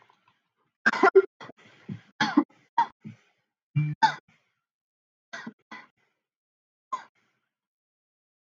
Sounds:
Cough